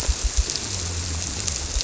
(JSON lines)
{"label": "biophony", "recorder": "SoundTrap 300"}